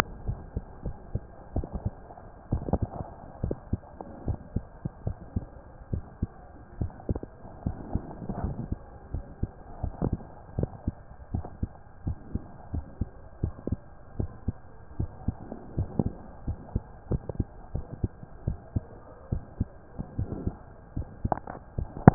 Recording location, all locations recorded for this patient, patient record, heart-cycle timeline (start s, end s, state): mitral valve (MV)
aortic valve (AV)+pulmonary valve (PV)+tricuspid valve (TV)+mitral valve (MV)
#Age: Child
#Sex: Male
#Height: 140.0 cm
#Weight: 39.2 kg
#Pregnancy status: False
#Murmur: Absent
#Murmur locations: nan
#Most audible location: nan
#Systolic murmur timing: nan
#Systolic murmur shape: nan
#Systolic murmur grading: nan
#Systolic murmur pitch: nan
#Systolic murmur quality: nan
#Diastolic murmur timing: nan
#Diastolic murmur shape: nan
#Diastolic murmur grading: nan
#Diastolic murmur pitch: nan
#Diastolic murmur quality: nan
#Outcome: Normal
#Campaign: 2015 screening campaign
0.00	0.82	unannotated
0.82	0.96	S1
0.96	1.12	systole
1.12	1.22	S2
1.22	1.54	diastole
1.54	1.68	S1
1.68	1.82	systole
1.82	1.96	S2
1.96	2.48	diastole
2.48	2.66	S1
2.66	2.80	systole
2.80	2.92	S2
2.92	3.40	diastole
3.40	3.58	S1
3.58	3.70	systole
3.70	3.82	S2
3.82	4.24	diastole
4.24	4.38	S1
4.38	4.52	systole
4.52	4.66	S2
4.66	5.04	diastole
5.04	5.18	S1
5.18	5.34	systole
5.34	5.48	S2
5.48	5.92	diastole
5.92	6.04	S1
6.04	6.18	systole
6.18	6.32	S2
6.32	6.78	diastole
6.78	6.92	S1
6.92	7.06	systole
7.06	7.20	S2
7.20	7.64	diastole
7.64	7.78	S1
7.78	7.92	systole
7.92	8.02	S2
8.02	8.38	diastole
8.38	8.56	S1
8.56	8.70	systole
8.70	8.80	S2
8.80	9.12	diastole
9.12	9.26	S1
9.26	9.39	systole
9.39	9.50	S2
9.50	9.82	diastole
9.82	9.94	S1
9.94	10.04	systole
10.04	10.20	S2
10.20	10.56	diastole
10.56	10.72	S1
10.72	10.86	systole
10.86	10.96	S2
10.96	11.32	diastole
11.32	11.46	S1
11.46	11.58	systole
11.58	11.72	S2
11.72	12.06	diastole
12.06	12.18	S1
12.18	12.30	systole
12.30	12.42	S2
12.42	12.72	diastole
12.72	12.86	S1
12.86	12.99	systole
12.99	13.10	S2
13.10	13.42	diastole
13.42	13.54	S1
13.54	13.66	systole
13.66	13.80	S2
13.80	14.18	diastole
14.18	14.32	S1
14.32	14.44	systole
14.44	14.58	S2
14.58	14.98	diastole
14.98	15.12	S1
15.12	15.24	systole
15.24	15.36	S2
15.36	15.74	diastole
15.74	15.90	S1
15.90	15.98	systole
15.98	16.14	S2
16.14	16.46	diastole
16.46	16.60	S1
16.60	16.73	systole
16.73	16.82	S2
16.82	17.11	diastole
17.11	17.24	S1
17.24	17.37	systole
17.37	17.46	S2
17.46	17.72	diastole
17.72	17.88	S1
17.88	18.02	systole
18.02	18.14	S2
18.14	18.46	diastole
18.46	18.58	S1
18.58	18.72	systole
18.72	18.86	S2
18.86	19.28	diastole
19.28	19.44	S1
19.44	19.58	systole
19.58	19.74	S2
19.74	20.14	diastole
20.14	20.30	S1
20.30	20.44	systole
20.44	20.58	S2
20.58	20.96	diastole
20.96	21.10	S1
21.10	21.20	systole
21.20	21.34	S2
21.34	21.74	diastole
21.74	21.92	S1
21.92	22.14	unannotated